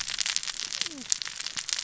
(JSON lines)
{"label": "biophony, cascading saw", "recorder": "SoundTrap 600 or HydroMoth"}